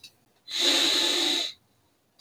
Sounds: Sniff